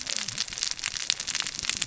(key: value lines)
label: biophony, cascading saw
recorder: SoundTrap 600 or HydroMoth